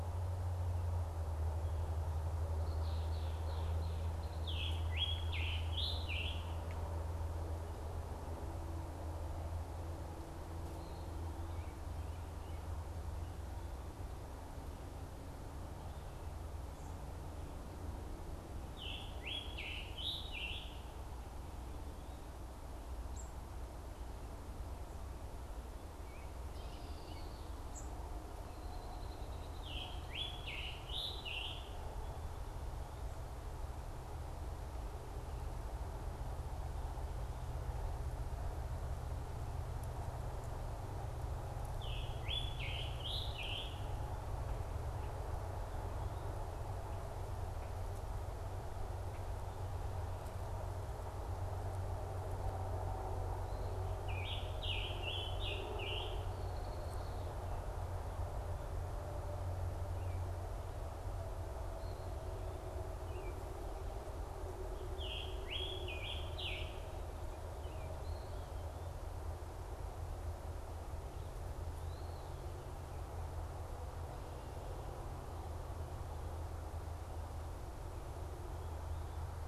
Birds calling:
Scarlet Tanager (Piranga olivacea)
Red-winged Blackbird (Agelaius phoeniceus)
unidentified bird

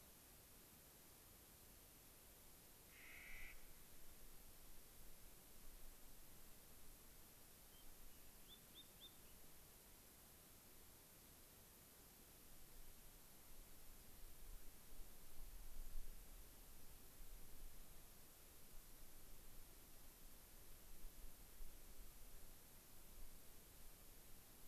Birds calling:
Clark's Nutcracker (Nucifraga columbiana)
Spotted Sandpiper (Actitis macularius)

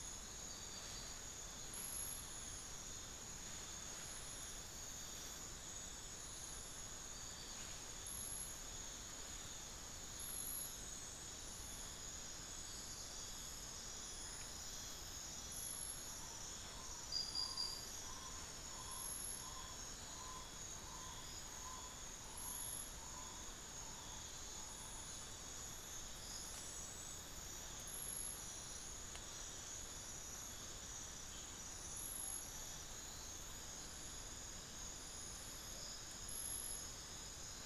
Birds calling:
Tawny-bellied Screech-Owl (Megascops watsonii)

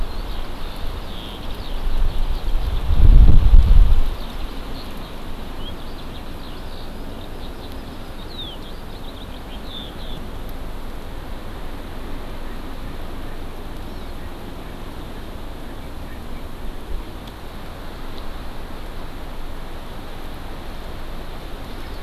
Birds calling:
Eurasian Skylark (Alauda arvensis)
Hawaii Amakihi (Chlorodrepanis virens)

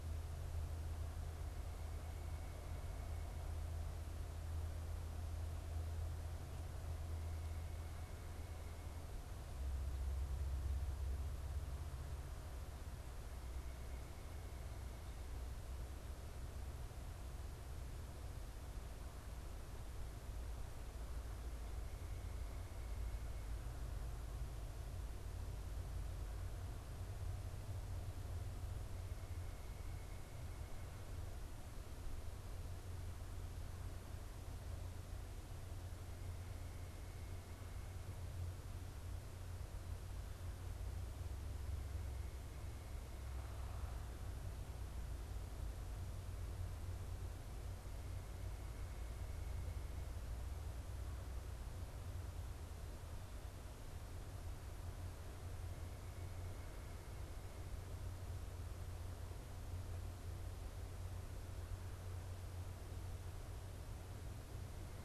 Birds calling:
White-breasted Nuthatch (Sitta carolinensis)

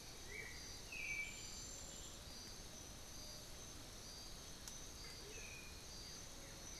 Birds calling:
Amazonian Motmot (Momotus momota)
Black-billed Thrush (Turdus ignobilis)
Blue-gray Saltator (Saltator coerulescens)

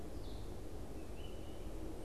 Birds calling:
unidentified bird
Red-eyed Vireo (Vireo olivaceus)

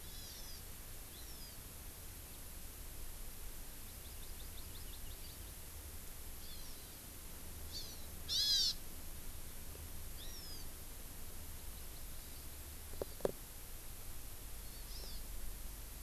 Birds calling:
Hawaii Amakihi (Chlorodrepanis virens)
Hawaiian Hawk (Buteo solitarius)

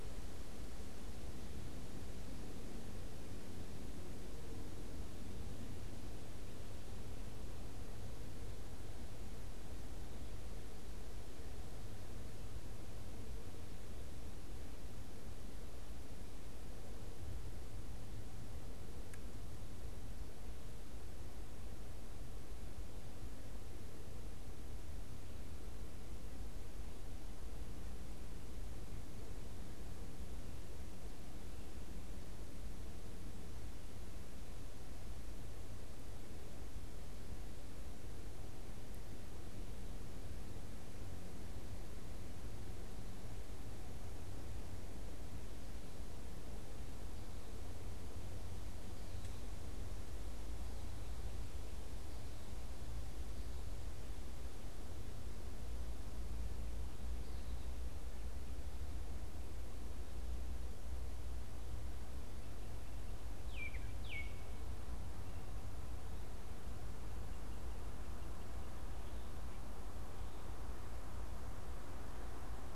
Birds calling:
Baltimore Oriole (Icterus galbula)

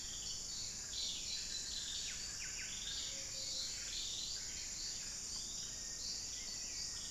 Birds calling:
unidentified bird
Black-faced Antthrush (Formicarius analis)
Buff-breasted Wren (Cantorchilus leucotis)
Ruddy Quail-Dove (Geotrygon montana)

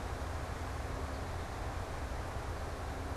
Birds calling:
American Goldfinch (Spinus tristis)

